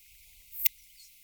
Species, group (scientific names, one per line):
Poecilimon affinis
Orthoptera